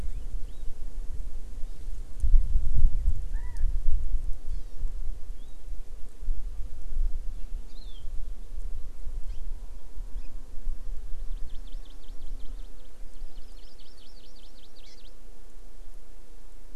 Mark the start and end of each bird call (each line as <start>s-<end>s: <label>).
0.4s-0.7s: Hawaii Amakihi (Chlorodrepanis virens)
3.3s-3.7s: Chinese Hwamei (Garrulax canorus)
4.5s-4.8s: Hawaii Amakihi (Chlorodrepanis virens)
5.3s-5.6s: Hawaii Amakihi (Chlorodrepanis virens)
7.7s-8.0s: Hawaii Amakihi (Chlorodrepanis virens)
9.3s-9.4s: Hawaii Amakihi (Chlorodrepanis virens)
10.1s-10.3s: Hawaii Amakihi (Chlorodrepanis virens)
11.1s-15.2s: Hawaii Amakihi (Chlorodrepanis virens)